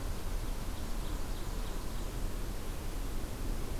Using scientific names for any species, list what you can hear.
Seiurus aurocapilla